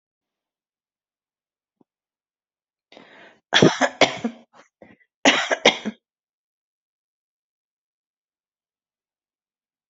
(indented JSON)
{
  "expert_labels": [
    {
      "quality": "good",
      "cough_type": "dry",
      "dyspnea": false,
      "wheezing": false,
      "stridor": false,
      "choking": false,
      "congestion": false,
      "nothing": true,
      "diagnosis": "healthy cough",
      "severity": "pseudocough/healthy cough"
    }
  ],
  "age": 52,
  "gender": "female",
  "respiratory_condition": false,
  "fever_muscle_pain": false,
  "status": "COVID-19"
}